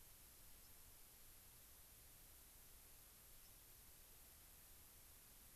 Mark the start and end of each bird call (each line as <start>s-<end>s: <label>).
0.6s-0.7s: White-crowned Sparrow (Zonotrichia leucophrys)
3.4s-3.5s: White-crowned Sparrow (Zonotrichia leucophrys)